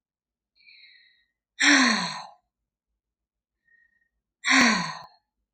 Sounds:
Sigh